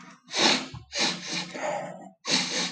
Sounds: Sniff